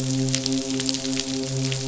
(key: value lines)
label: biophony, midshipman
recorder: SoundTrap 500